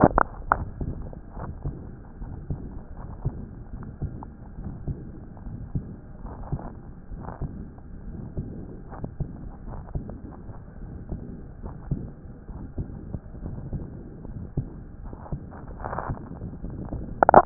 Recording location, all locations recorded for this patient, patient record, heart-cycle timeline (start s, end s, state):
aortic valve (AV)
aortic valve (AV)+pulmonary valve (PV)+tricuspid valve (TV)+mitral valve (MV)
#Age: Adolescent
#Sex: Male
#Height: 162.0 cm
#Weight: 47.4 kg
#Pregnancy status: False
#Murmur: Present
#Murmur locations: aortic valve (AV)+mitral valve (MV)+pulmonary valve (PV)+tricuspid valve (TV)
#Most audible location: mitral valve (MV)
#Systolic murmur timing: Early-systolic
#Systolic murmur shape: Decrescendo
#Systolic murmur grading: II/VI
#Systolic murmur pitch: Medium
#Systolic murmur quality: Harsh
#Diastolic murmur timing: Early-diastolic
#Diastolic murmur shape: Decrescendo
#Diastolic murmur grading: II/IV
#Diastolic murmur pitch: Medium
#Diastolic murmur quality: Blowing
#Outcome: Abnormal
#Campaign: 2014 screening campaign
0.00	1.14	unannotated
1.14	1.38	diastole
1.38	1.52	S1
1.52	1.64	systole
1.64	1.76	S2
1.76	2.22	diastole
2.22	2.34	S1
2.34	2.50	systole
2.50	2.60	S2
2.60	3.00	diastole
3.00	3.12	S1
3.12	3.26	systole
3.26	3.46	S2
3.46	3.74	diastole
3.74	3.88	S1
3.88	4.02	systole
4.02	4.14	S2
4.14	4.60	diastole
4.60	4.74	S1
4.74	4.86	systole
4.86	4.98	S2
4.98	5.48	diastole
5.48	5.60	S1
5.60	5.74	systole
5.74	5.86	S2
5.86	6.13	diastole
6.13	17.46	unannotated